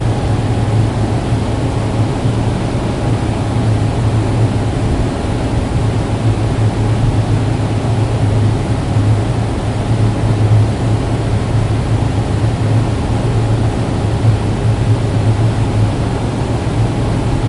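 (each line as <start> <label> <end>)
0.0 A boat engine hums steadily while the motor churns rhythmically, blending with splashing sounds and gentle wave movements. 17.5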